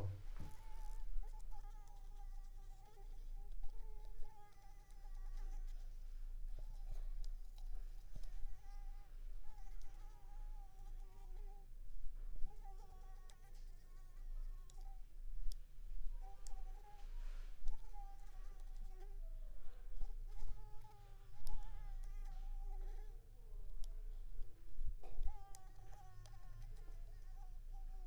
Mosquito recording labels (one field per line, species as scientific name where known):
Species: Anopheles squamosus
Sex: female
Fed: unfed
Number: one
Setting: cup